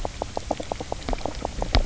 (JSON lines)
{"label": "biophony, knock croak", "recorder": "SoundTrap 300"}